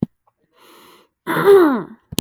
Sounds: Throat clearing